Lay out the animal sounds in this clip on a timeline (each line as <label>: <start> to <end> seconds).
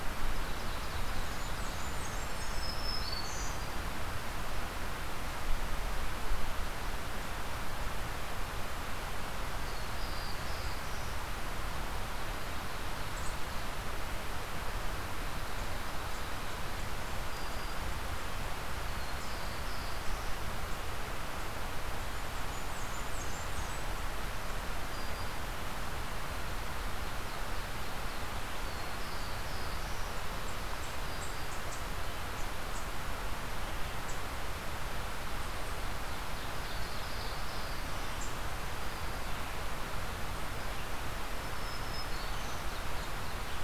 Ovenbird (Seiurus aurocapilla): 0.0 to 1.9 seconds
Blackburnian Warbler (Setophaga fusca): 1.0 to 2.7 seconds
Black-throated Green Warbler (Setophaga virens): 2.3 to 3.6 seconds
Black-throated Blue Warbler (Setophaga caerulescens): 9.5 to 11.2 seconds
Black-throated Green Warbler (Setophaga virens): 17.1 to 18.0 seconds
Black-throated Blue Warbler (Setophaga caerulescens): 18.8 to 20.4 seconds
Blackburnian Warbler (Setophaga fusca): 21.9 to 23.9 seconds
Black-throated Green Warbler (Setophaga virens): 24.7 to 25.4 seconds
Ovenbird (Seiurus aurocapilla): 26.7 to 28.6 seconds
Black-throated Blue Warbler (Setophaga caerulescens): 28.5 to 30.2 seconds
Ovenbird (Seiurus aurocapilla): 35.6 to 37.3 seconds
Black-throated Blue Warbler (Setophaga caerulescens): 36.6 to 38.2 seconds
Black-throated Green Warbler (Setophaga virens): 41.3 to 42.6 seconds
Ovenbird (Seiurus aurocapilla): 42.0 to 43.6 seconds